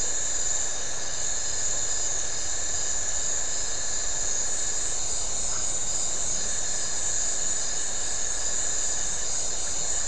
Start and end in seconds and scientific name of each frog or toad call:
5.5	5.7	Phyllomedusa distincta
7.5	10.0	Leptodactylus notoaktites